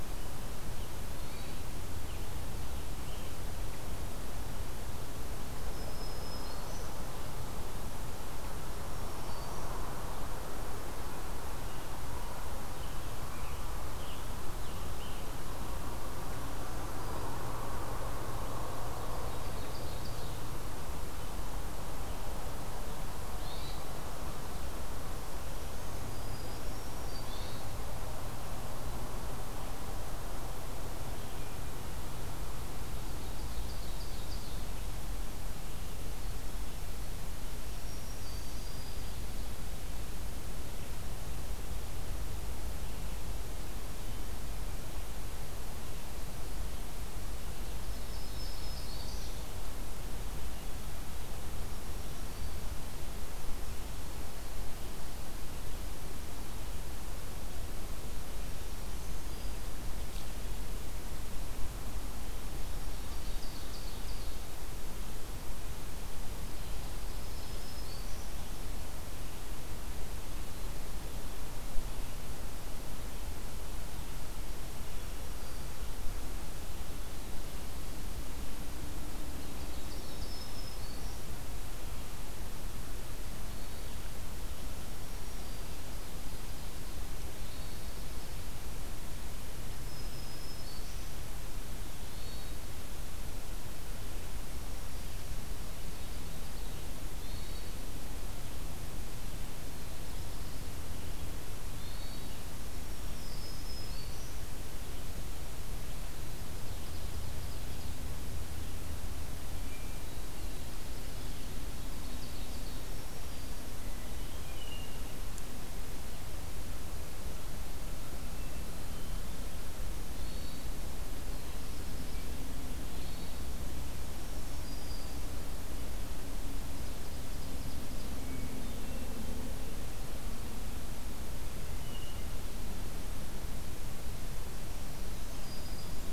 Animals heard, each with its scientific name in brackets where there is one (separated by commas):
Blue Jay (Cyanocitta cristata), Black-throated Green Warbler (Setophaga virens), Hermit Thrush (Catharus guttatus), Ovenbird (Seiurus aurocapilla), Black-throated Blue Warbler (Setophaga caerulescens), Scarlet Tanager (Piranga olivacea)